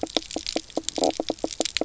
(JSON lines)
{"label": "biophony, knock croak", "recorder": "SoundTrap 300"}